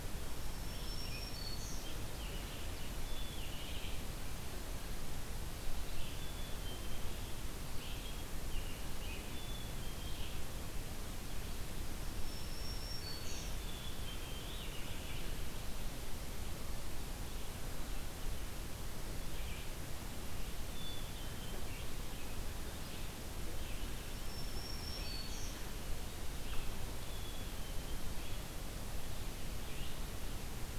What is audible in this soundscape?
Red-eyed Vireo, Black-throated Green Warbler, Black-capped Chickadee, American Robin, American Goldfinch